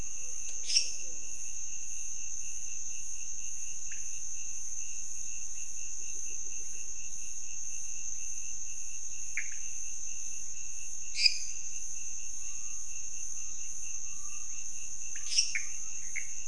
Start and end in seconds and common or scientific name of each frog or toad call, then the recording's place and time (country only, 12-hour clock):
0.5	1.1	lesser tree frog
3.8	4.1	pointedbelly frog
9.3	9.7	pointedbelly frog
11.1	11.8	lesser tree frog
15.1	15.7	lesser tree frog
15.1	16.4	pointedbelly frog
Brazil, 2:15am